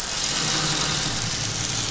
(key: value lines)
label: anthrophony, boat engine
recorder: SoundTrap 500